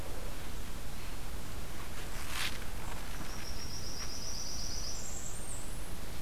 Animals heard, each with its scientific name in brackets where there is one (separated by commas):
Blackburnian Warbler (Setophaga fusca)